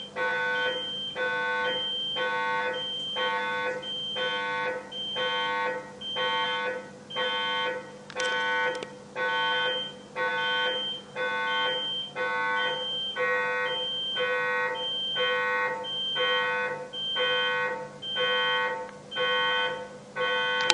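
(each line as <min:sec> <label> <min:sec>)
0:00.0 A loud alarm sound repeats its siren. 0:20.7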